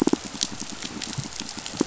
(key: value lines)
label: biophony, pulse
recorder: SoundTrap 500